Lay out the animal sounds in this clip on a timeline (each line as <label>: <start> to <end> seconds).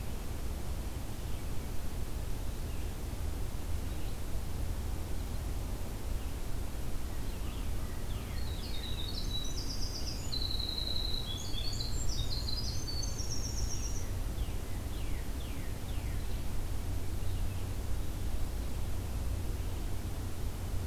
Northern Cardinal (Cardinalis cardinalis): 7.3 to 9.1 seconds
American Crow (Corvus brachyrhynchos): 7.3 to 8.5 seconds
Winter Wren (Troglodytes hiemalis): 8.4 to 14.1 seconds
Northern Cardinal (Cardinalis cardinalis): 13.7 to 16.2 seconds